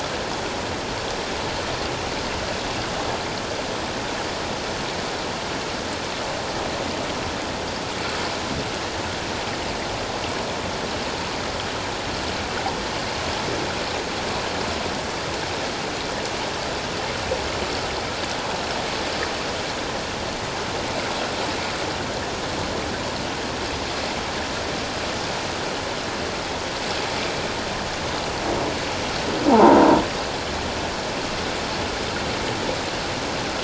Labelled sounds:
29.5	29.8	croaking sound likely from a nearby submerged object, 0.78 to 1.1 kHz

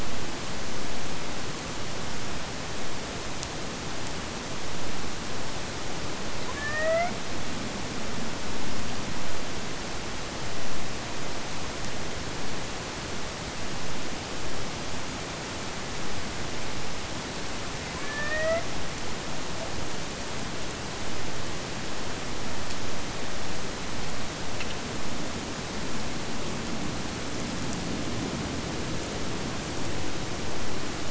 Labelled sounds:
6.4	7.3	killer whale, Bigg's (transient), AT1 transient, 0.51 to 3.1 kHz
17.9	18.8	killer whale, Bigg's (transient), AT1 transient, 0.51 to 3.0 kHz

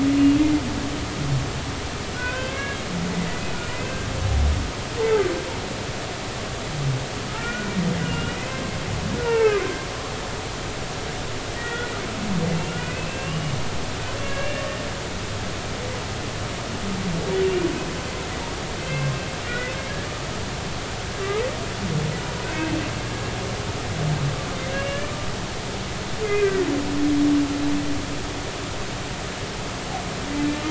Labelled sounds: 2.2	2.8	humpback whale, 0.96 to 2.7 kHz
3.6	4.1	humpback whale, 1.5 to 2.7 kHz
7.3	7.7	humpback whale, 1.2 to 2.5 kHz
8.0	8.6	humpback whale, 2.4 to 3.0 kHz
9.2	9.6	humpback whale, 0.80 to 2.9 kHz
11.5	12.0	humpback whale, 1.3 to 2.0 kHz
12.7	13.5	humpback whale, 1.3 to 2.9 kHz
14.2	14.6	humpback whale, 1.6 to 2.8 kHz
18.8	19.7	humpback whale, 1.4 to 2.7 kHz
22.4	22.7	humpback whale, 2.5 to 2.7 kHz
24.7	25.1	humpback whale, 1.6 to 3.0 kHz
26.2	26.7	humpback whale, 1.5 to 2.5 kHz

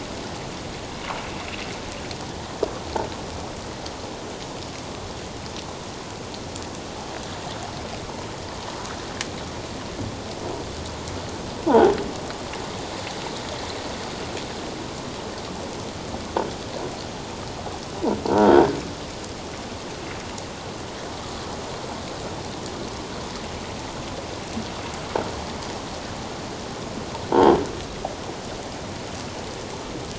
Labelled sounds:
11.7	11.9	croaking sound likely from a nearby submerged object, 0.78 to 1.1 kHz
18.3	18.8	croaking sound likely from a nearby submerged object, 1.3 to 1.7 kHz

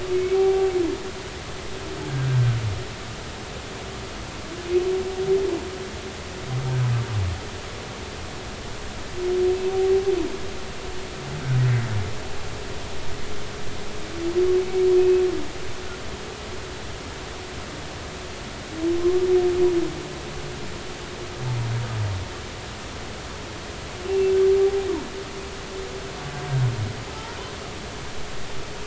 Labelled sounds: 0.1	0.7	humpback whale, 0.80 to 2.7 kHz
14.6	15.2	humpback whale, 2.2 to 2.6 kHz
24.1	24.3	humpback whale, 2.6 to 2.8 kHz

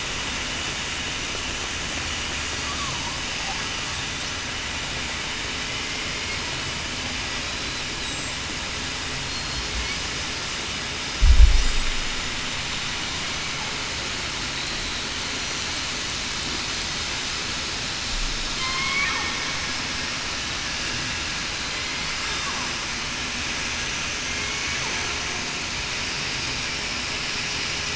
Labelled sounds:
7.4	7.8	killer whale, southern resident, 3.8 to 4.1 kHz
9.2	9.7	killer whale, southern resident, 4.2 to 4.3 kHz
18.6	19.1	killer whale, southern resident, 0.98 to 2.4 kHz
24.2	24.8	killer whale, southern resident, 2.1 to 2.3 kHz

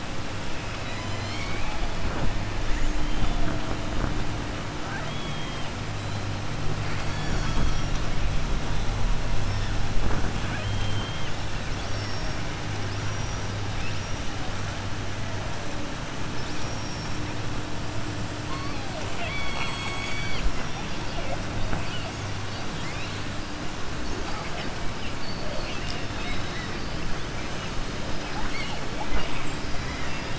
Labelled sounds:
4.8	5.7	killer whale, southern resident, 0.66 to 3.7 kHz
10.4	11.3	killer whale, southern resident, 0.66 to 4.0 kHz
11.7	12.4	killer whale, southern resident, 3.4 to 5.9 kHz
12.8	13.5	killer whale, southern resident, 4.7 to 6.0 kHz
16.3	17.2	killer whale, southern resident, 3.5 to 6.6 kHz
19.0	20.7	killer whale, southern resident, 0.66 to 7.8 kHz
28.2	28.8	killer whale, southern resident, 0.76 to 4.6 kHz
29.8	30.3	killer whale, southern resident, 1.3 to 3.7 kHz

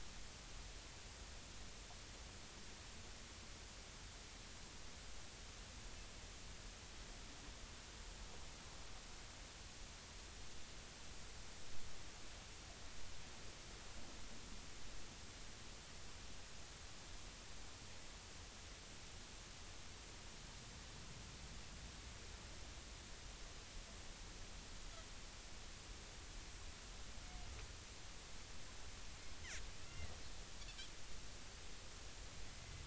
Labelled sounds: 29.8	31.1	Pacific white-sided dolphin, 1.9 to 2.9 kHz
32.6	32.8	Pacific white-sided dolphin, 2.0 to 2.1 kHz

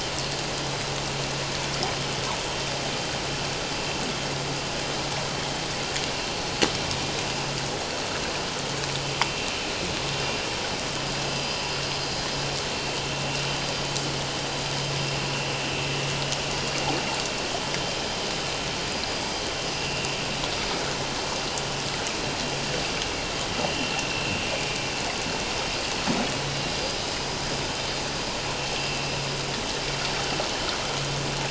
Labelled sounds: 23.6	23.9	vessel noise, 2.7 to 3.1 kHz
28.8	29.1	vessel noise, 2.6 to 2.8 kHz

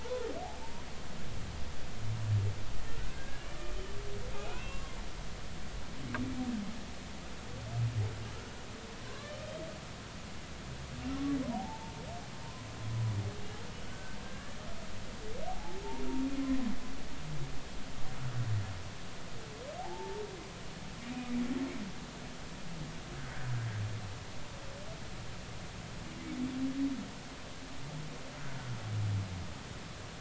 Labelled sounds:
0.0	0.3	humpback whale, 0.86 to 1.1 kHz
3.0	3.5	humpback whale, 1.4 to 1.7 kHz
4.3	5.0	humpback whale, 0.99 to 2.8 kHz
9.1	9.3	humpback whale, 0.99 to 1.2 kHz
11.5	12.0	humpback whale, 0.80 to 0.99 kHz
13.8	14.6	humpback whale, 1.4 to 1.8 kHz
15.5	15.8	humpback whale, 0.80 to 0.93 kHz
19.8	20.2	humpback whale, 0.80 to 0.96 kHz
23.2	23.5	humpback whale, 1.4 to 1.8 kHz

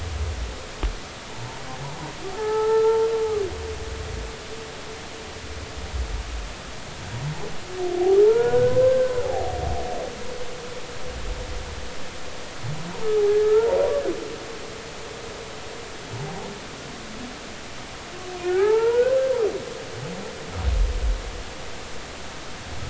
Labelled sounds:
2.3	3.0	humpback whale, 0.80 to 1.8 kHz
8.2	9.5	humpback whale, 0.80 to 1.6 kHz
13.3	13.8	humpback whale, 0.86 to 1.9 kHz
18.4	19.1	humpback whale, 0.80 to 2.3 kHz

